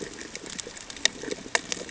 {"label": "ambient", "recorder": "HydroMoth"}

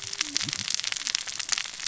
{"label": "biophony, cascading saw", "recorder": "SoundTrap 600 or HydroMoth"}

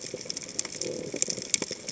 {"label": "biophony", "recorder": "HydroMoth"}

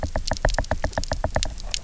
{"label": "biophony, knock", "recorder": "SoundTrap 300"}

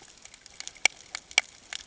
{"label": "ambient", "recorder": "HydroMoth"}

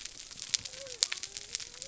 {"label": "biophony", "recorder": "SoundTrap 300"}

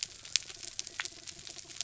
{"label": "biophony", "recorder": "SoundTrap 300"}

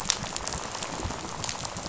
{"label": "biophony, rattle", "recorder": "SoundTrap 500"}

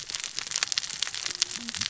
{"label": "biophony, cascading saw", "recorder": "SoundTrap 600 or HydroMoth"}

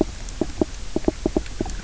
{"label": "biophony, knock croak", "recorder": "SoundTrap 300"}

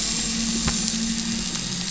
{"label": "anthrophony, boat engine", "recorder": "SoundTrap 500"}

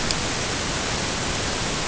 {"label": "ambient", "recorder": "HydroMoth"}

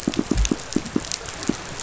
{"label": "biophony, pulse", "recorder": "SoundTrap 500"}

